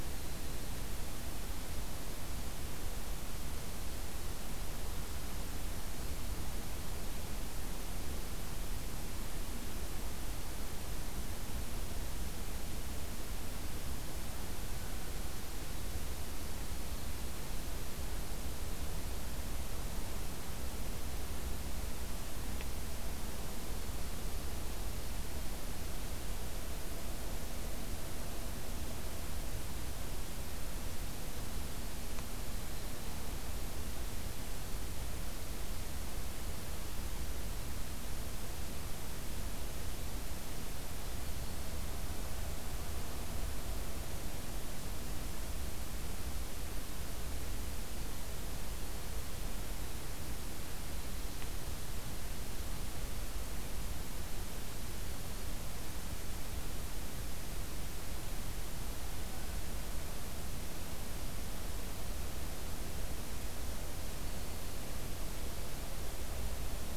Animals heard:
forest ambience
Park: Acadia National Park